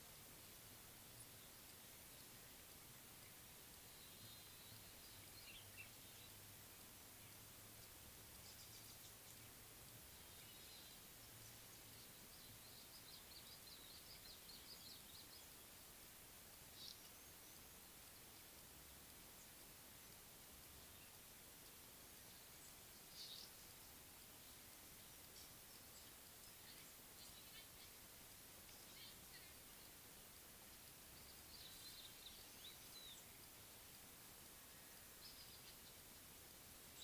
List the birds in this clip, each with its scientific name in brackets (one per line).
Red-faced Crombec (Sylvietta whytii)
Red-rumped Swallow (Cecropis daurica)